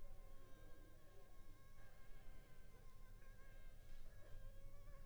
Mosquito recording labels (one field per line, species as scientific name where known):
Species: Anopheles funestus s.s.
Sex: female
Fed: unfed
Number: one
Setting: cup